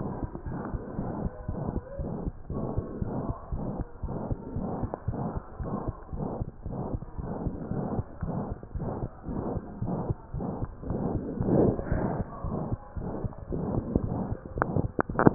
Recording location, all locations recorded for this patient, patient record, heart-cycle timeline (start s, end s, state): mitral valve (MV)
aortic valve (AV)+pulmonary valve (PV)+tricuspid valve (TV)+mitral valve (MV)
#Age: Child
#Sex: Male
#Height: 99.0 cm
#Weight: 16.7 kg
#Pregnancy status: False
#Murmur: Present
#Murmur locations: aortic valve (AV)+mitral valve (MV)+pulmonary valve (PV)+tricuspid valve (TV)
#Most audible location: pulmonary valve (PV)
#Systolic murmur timing: Holosystolic
#Systolic murmur shape: Plateau
#Systolic murmur grading: III/VI or higher
#Systolic murmur pitch: High
#Systolic murmur quality: Blowing
#Diastolic murmur timing: nan
#Diastolic murmur shape: nan
#Diastolic murmur grading: nan
#Diastolic murmur pitch: nan
#Diastolic murmur quality: nan
#Outcome: Abnormal
#Campaign: 2015 screening campaign
0.00	0.26	unannotated
0.26	0.44	diastole
0.44	0.57	S1
0.57	0.70	systole
0.70	0.82	S2
0.82	0.97	diastole
0.97	1.08	S1
1.08	1.18	systole
1.18	1.34	S2
1.34	1.47	diastole
1.47	1.55	S1
1.55	1.74	systole
1.74	1.86	S2
1.86	1.98	diastole
1.98	2.08	S1
2.08	2.24	systole
2.24	2.36	S2
2.36	2.50	diastole
2.50	2.59	S1
2.59	2.75	systole
2.75	2.86	S2
2.86	3.04	diastole
3.04	3.11	S1
3.11	3.26	systole
3.26	3.34	S2
3.34	3.51	diastole
3.51	3.61	S1
3.61	3.75	systole
3.75	3.85	S2
3.85	4.02	diastole
4.02	4.11	S1
4.11	4.26	systole
4.26	4.38	S2
4.38	4.55	diastole
4.55	4.65	S1
4.65	4.79	systole
4.79	4.90	S2
4.90	5.07	diastole
5.07	5.14	S1
5.14	5.34	systole
5.34	5.46	S2
5.46	5.60	diastole
5.60	5.67	S1
5.67	5.86	systole
5.86	5.94	S2
5.94	6.13	diastole
6.13	6.23	S1
6.23	6.38	systole
6.38	6.48	S2
6.48	6.65	diastole
6.65	6.73	S1
6.73	6.92	systole
6.92	7.00	S2
7.00	7.18	diastole
7.18	7.26	S1
7.26	7.40	systole
7.40	7.54	S2
7.54	7.72	diastole
7.72	7.83	S1
7.83	7.94	systole
7.94	8.06	S2
8.06	8.21	diastole
8.21	8.30	S1
8.30	8.50	systole
8.50	8.58	S2
8.58	8.73	diastole
8.73	8.82	S1
8.82	9.00	systole
9.00	9.10	S2
9.10	9.30	diastole
9.30	9.44	S1
9.44	9.52	systole
9.52	9.64	S2
9.64	9.80	diastole
9.80	9.89	S1
9.89	10.08	systole
10.08	10.18	S2
10.18	10.34	diastole
10.34	10.43	S1
10.43	10.60	systole
10.60	10.74	S2
10.74	10.90	diastole
10.90	11.04	S1
11.04	11.14	systole
11.14	11.24	S2
11.24	11.43	diastole
11.43	11.53	S1
11.53	11.64	systole
11.64	11.74	S2
11.74	11.92	diastole
11.92	11.99	S1
11.99	12.16	systole
12.16	12.30	S2
12.30	12.43	diastole
12.43	12.52	S1
12.52	12.70	systole
12.70	12.84	S2
12.84	12.97	diastole
12.97	13.05	S1
13.05	13.22	systole
13.22	13.32	S2
13.32	13.50	diastole
13.50	13.59	S1
13.59	13.73	systole
13.73	13.80	S2
13.80	14.02	diastole
14.02	14.14	S1
14.14	14.27	systole
14.27	14.37	S2
14.37	14.54	diastole
14.54	15.34	unannotated